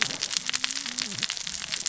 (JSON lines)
{"label": "biophony, cascading saw", "recorder": "SoundTrap 600 or HydroMoth"}